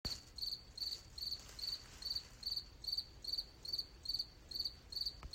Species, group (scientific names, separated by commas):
Gryllus pennsylvanicus, Orthoptera